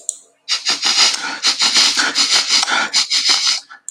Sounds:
Sniff